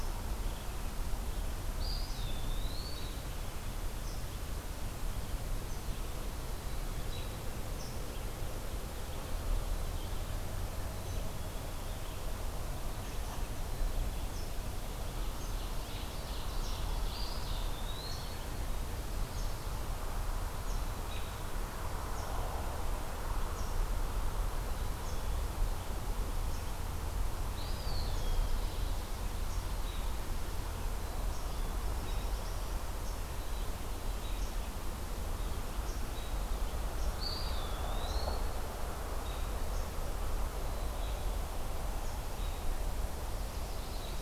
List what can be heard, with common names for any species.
Eastern Wood-Pewee, American Robin, Ovenbird, Black-capped Chickadee, Black-throated Blue Warbler